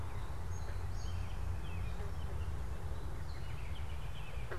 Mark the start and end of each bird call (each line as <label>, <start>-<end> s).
American Robin (Turdus migratorius), 0.0-4.6 s
Song Sparrow (Melospiza melodia), 0.3-2.2 s